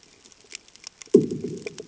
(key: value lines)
label: anthrophony, bomb
recorder: HydroMoth